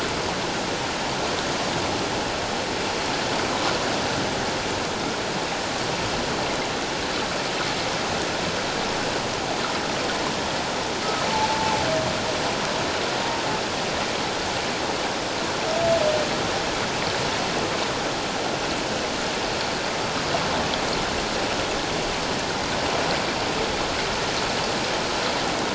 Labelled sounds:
11.3	11.8	humpback whale, 0.81 to 0.94 kHz

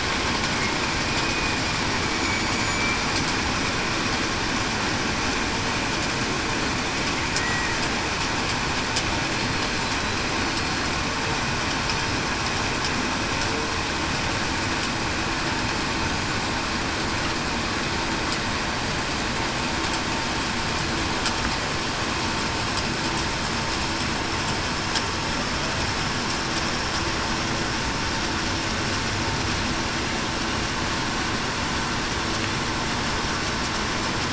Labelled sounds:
1.0	1.6	killer whale, Bigg's (transient), 2.4 to 2.5 kHz
2.1	2.9	killer whale, Bigg's (transient), 6.8 to 7.1 kHz
7.3	7.7	killer whale, Bigg's (transient), 1.8 to 2.0 kHz

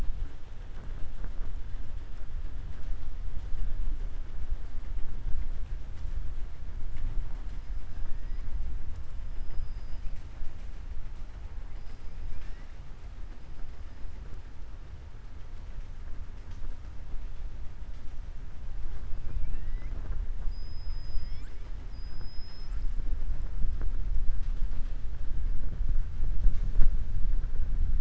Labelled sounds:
21.8	22.9	killer whale, southern resident, 4.1 to 7.9 kHz

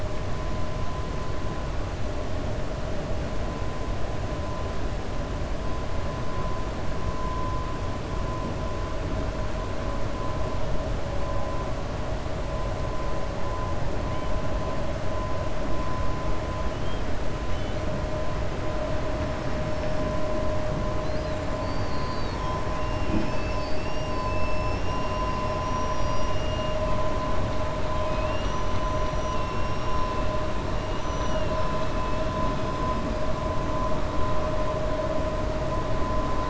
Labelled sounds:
31.1	31.5	killer whale, 2.7 to 3.9 kHz

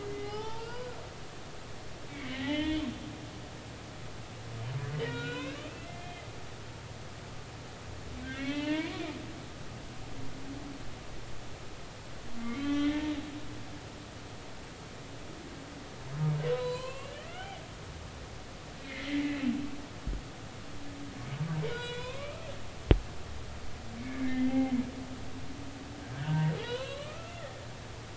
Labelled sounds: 0.1	0.9	humpback whale, 0.80 to 5.3 kHz
2.1	2.9	humpback whale, 1.8 to 3.5 kHz
5.0	6.3	humpback whale, 1.3 to 4.1 kHz
8.2	9.0	humpback whale, 0.86 to 2.8 kHz
12.4	13.1	humpback whale, 1.1 to 3.8 kHz
16.5	17.6	humpback whale, 0.93 to 4.3 kHz
18.8	19.5	humpback whale, 1.7 to 2.8 kHz
21.7	22.5	humpback whale, 0.93 to 4.1 kHz
24.0	24.8	humpback whale, 0.80 to 3.2 kHz
26.1	27.6	humpback whale, 0.83 to 4.2 kHz

